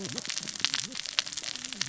{"label": "biophony, cascading saw", "recorder": "SoundTrap 600 or HydroMoth"}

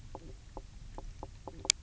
{"label": "biophony, knock croak", "recorder": "SoundTrap 300"}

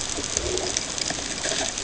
{"label": "ambient", "recorder": "HydroMoth"}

